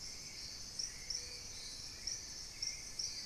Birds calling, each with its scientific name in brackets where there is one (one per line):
Gray Antwren (Myrmotherula menetriesii)
Hauxwell's Thrush (Turdus hauxwelli)